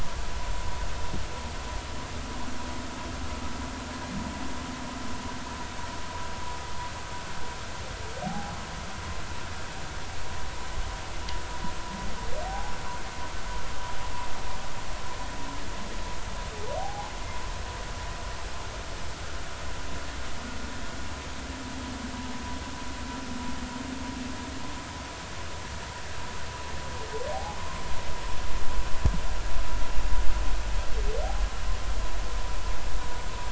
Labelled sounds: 8.2	8.5	humpback whale, 0.80 to 0.86 kHz
12.4	12.7	humpback whale, 0.80 to 0.90 kHz
16.8	17.1	humpback whale, 0.80 to 0.90 kHz
27.3	27.8	humpback whale, 0.80 to 1.1 kHz

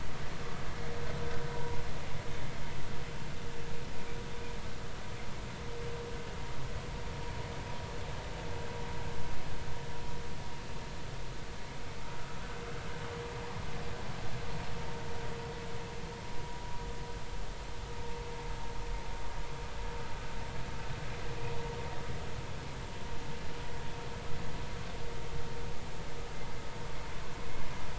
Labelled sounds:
1.5	1.8	vessel noise, 0.86 to 0.99 kHz

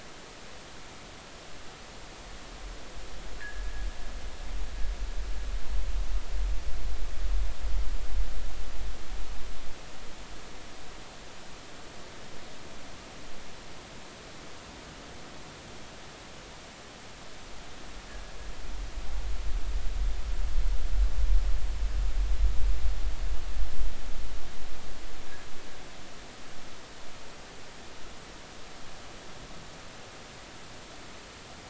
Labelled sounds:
3.4	3.7	fishing gear, 1.6 to 1.9 kHz
18.1	18.3	fishing gear, 1.6 to 1.8 kHz

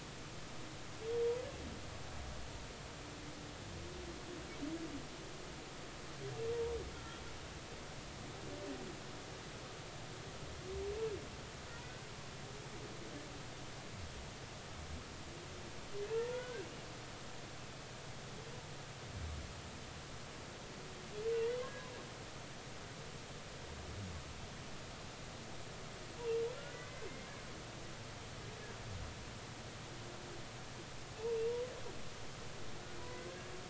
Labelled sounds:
6.9	7.2	humpback whale, 1.3 to 1.5 kHz
16.1	16.7	humpback whale, 0.86 to 1.7 kHz
21.3	21.9	humpback whale, 1.5 to 2.0 kHz
26.6	27.3	humpback whale, 1.3 to 2.2 kHz

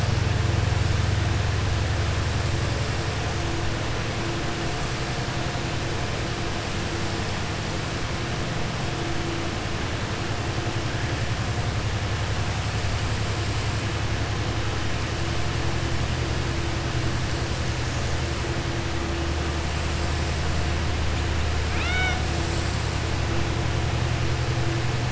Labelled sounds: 21.6	22.2	killer whale, southern resident, 0.72 to 4.2 kHz

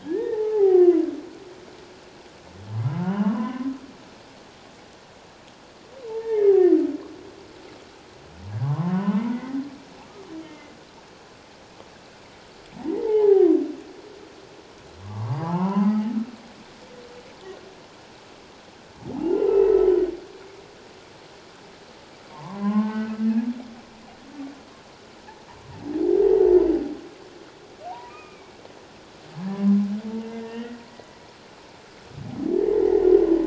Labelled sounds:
0.0	0.9	humpback whale, 0.78 to 2.1 kHz
2.8	3.7	humpback whale, 0.84 to 3.0 kHz
6.1	6.5	humpback whale, 0.81 to 2.3 kHz
8.6	9.6	humpback whale, 0.78 to 2.1 kHz
10.4	10.7	humpback whale, 2.0 to 2.2 kHz
12.8	13.5	humpback whale, 0.78 to 2.1 kHz
15.0	16.1	humpback whale, 0.78 to 4.8 kHz
19.1	19.9	humpback whale, 0.78 to 2.8 kHz
22.3	23.2	humpback whale, 0.78 to 3.1 kHz
26.6	26.8	humpback whale, 4.7 to 5.0 kHz
27.9	28.6	humpback whale, 0.78 to 2.6 kHz
29.4	29.9	humpback whale, 0.94 to 1.8 kHz
30.4	31.2	humpback whale, 1.8 to 3.2 kHz

